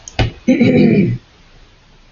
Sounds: Throat clearing